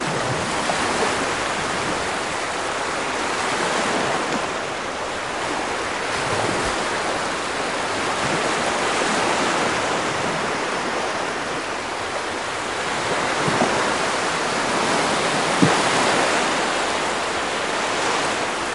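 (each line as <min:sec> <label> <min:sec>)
0:00.0 Waves softly hit the shore in a relaxing, repeating pattern. 0:18.7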